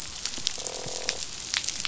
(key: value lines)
label: biophony, croak
recorder: SoundTrap 500